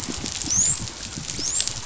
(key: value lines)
label: biophony, dolphin
recorder: SoundTrap 500